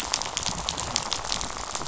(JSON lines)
{"label": "biophony, rattle", "recorder": "SoundTrap 500"}